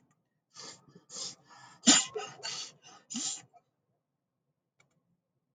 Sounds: Sniff